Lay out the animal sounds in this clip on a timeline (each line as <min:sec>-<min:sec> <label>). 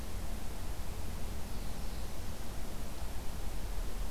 0:00.9-0:02.1 Black-throated Blue Warbler (Setophaga caerulescens)